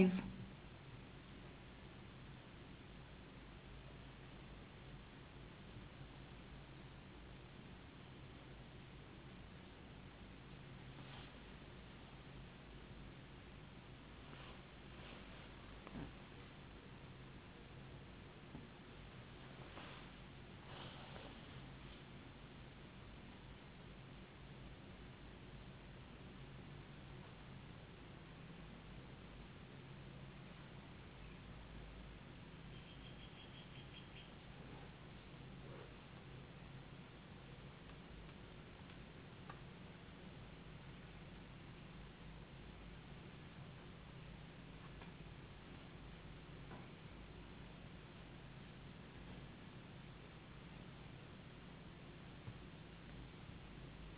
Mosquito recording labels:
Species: no mosquito; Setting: insect culture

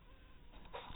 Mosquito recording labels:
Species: mosquito; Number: one; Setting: cup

